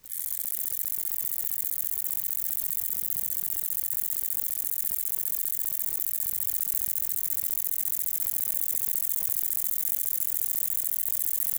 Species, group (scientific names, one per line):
Conocephalus fuscus
Orthoptera